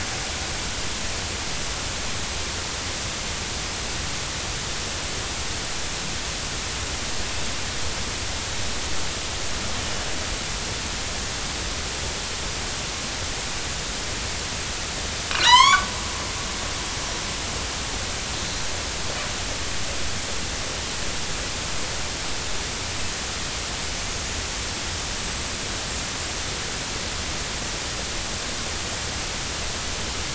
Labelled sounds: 15.4	15.9	killer whale, northern resident, A clan, AB subclan, 0.86 to 8.0 kHz

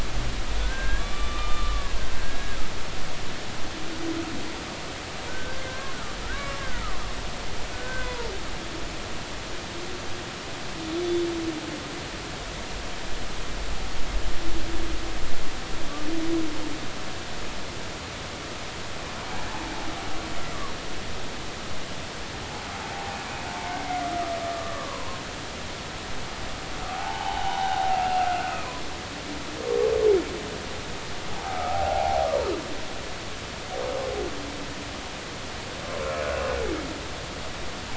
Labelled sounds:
0.6	2.6	humpback whale, 1.0 to 3.6 kHz
5.3	5.9	humpback whale, 0.99 to 1.7 kHz
6.2	7.0	humpback whale, 1.0 to 1.7 kHz
7.7	8.3	humpback whale, 0.86 to 1.6 kHz
22.9	23.2	humpback whale, 0.80 to 0.93 kHz
24.4	25.1	humpback whale, 0.90 to 1.2 kHz
26.9	28.8	humpback whale, 0.80 to 3.1 kHz
31.3	32.3	humpback whale, 0.80 to 1.4 kHz

